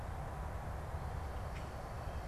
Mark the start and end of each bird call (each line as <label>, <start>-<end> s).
unidentified bird, 1.1-1.9 s